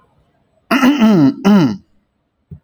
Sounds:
Throat clearing